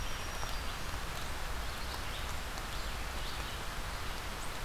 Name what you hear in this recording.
Black-throated Green Warbler, Red-eyed Vireo